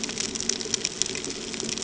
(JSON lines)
{"label": "ambient", "recorder": "HydroMoth"}